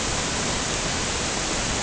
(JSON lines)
{"label": "ambient", "recorder": "HydroMoth"}